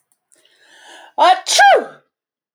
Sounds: Sneeze